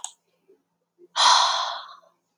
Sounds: Sigh